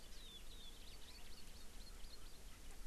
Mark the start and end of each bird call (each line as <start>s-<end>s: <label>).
0.6s-2.4s: Hawaii Amakihi (Chlorodrepanis virens)